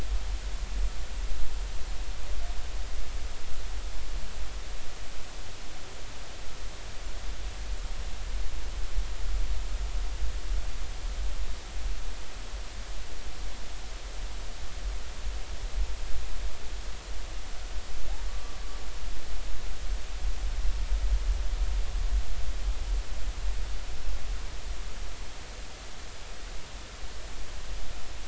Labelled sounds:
18.3	18.5	humpback whale, 1.1 to 1.2 kHz

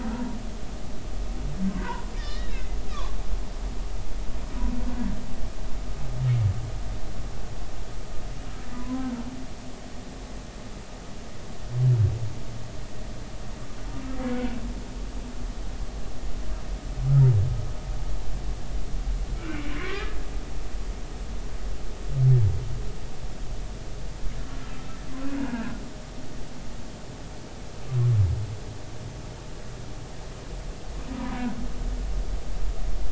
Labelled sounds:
1.8	3.1	humpback whale, 0.86 to 5.0 kHz
8.7	9.1	humpback whale, 0.96 to 1.1 kHz
19.4	20.2	humpback whale, 1.0 to 2.4 kHz
24.6	24.9	humpback whale, 1.3 to 1.4 kHz
25.4	25.7	humpback whale, 1.4 to 1.7 kHz
31.1	31.4	humpback whale, 0.90 to 1.1 kHz

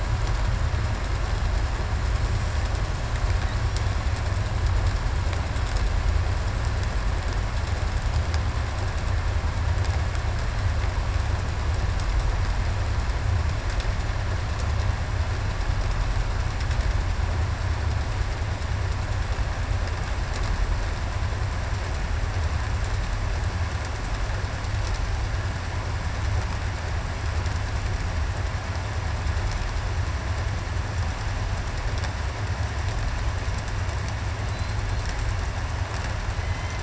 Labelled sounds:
36.3	36.8	killer whale, southern resident, 2.0 to 3.1 kHz

